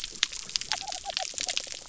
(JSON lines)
{"label": "biophony", "recorder": "SoundTrap 300"}